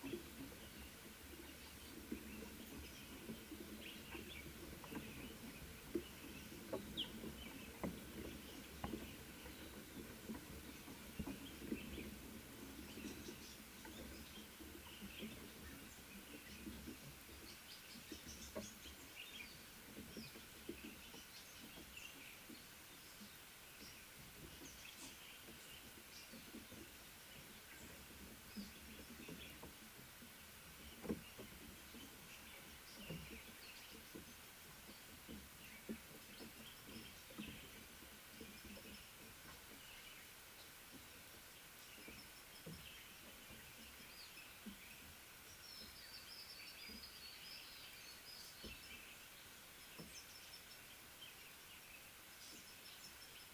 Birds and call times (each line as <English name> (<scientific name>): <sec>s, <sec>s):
Common Bulbul (Pycnonotus barbatus): 19.3s
Little Bee-eater (Merops pusillus): 46.9s